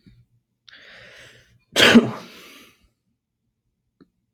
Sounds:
Sneeze